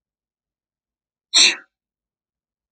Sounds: Sneeze